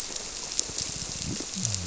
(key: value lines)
label: biophony
recorder: SoundTrap 300